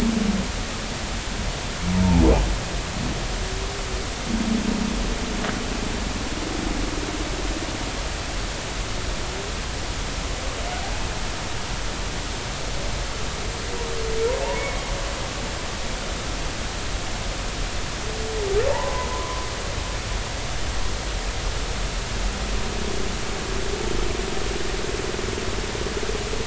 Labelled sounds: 14.5	14.8	humpback whale, 2.1 to 2.3 kHz
18.7	19.4	humpback whale, 0.83 to 1.2 kHz

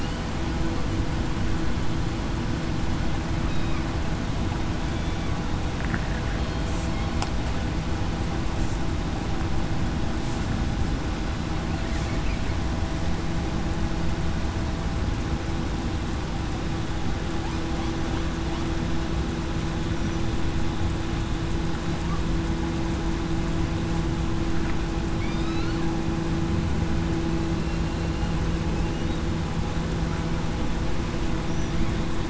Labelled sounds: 3.5	3.8	killer whale, southern resident, 2.2 to 2.6 kHz

